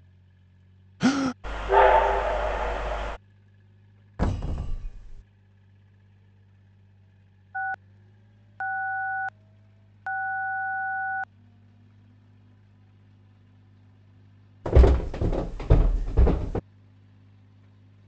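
First someone gasps. Then a train is heard. After that, a wooden cupboard closes. Afterwards, you can hear a telephone. Following that, footsteps on a wooden floor are audible.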